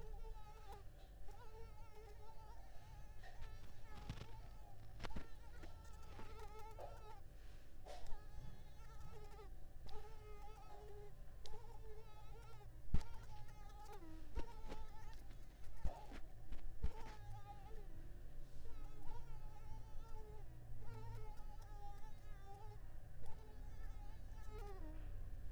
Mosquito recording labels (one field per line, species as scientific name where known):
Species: Culex pipiens complex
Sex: female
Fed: unfed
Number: one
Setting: cup